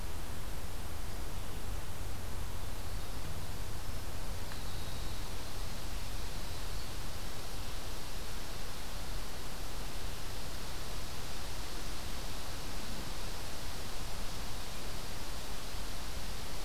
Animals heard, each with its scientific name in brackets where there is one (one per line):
Winter Wren (Troglodytes hiemalis)
Red-eyed Vireo (Vireo olivaceus)